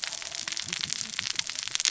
{"label": "biophony, cascading saw", "recorder": "SoundTrap 600 or HydroMoth"}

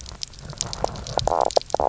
{"label": "biophony, knock croak", "recorder": "SoundTrap 300"}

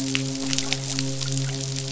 {"label": "biophony, midshipman", "recorder": "SoundTrap 500"}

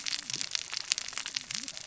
{"label": "biophony, cascading saw", "recorder": "SoundTrap 600 or HydroMoth"}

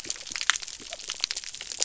{"label": "biophony", "recorder": "SoundTrap 300"}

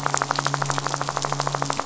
{"label": "anthrophony, boat engine", "recorder": "SoundTrap 500"}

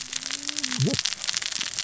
{"label": "biophony, cascading saw", "recorder": "SoundTrap 600 or HydroMoth"}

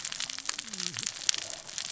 {"label": "biophony, cascading saw", "recorder": "SoundTrap 600 or HydroMoth"}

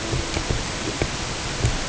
{"label": "ambient", "recorder": "HydroMoth"}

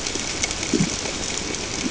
{"label": "ambient", "recorder": "HydroMoth"}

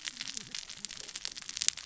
{"label": "biophony, cascading saw", "recorder": "SoundTrap 600 or HydroMoth"}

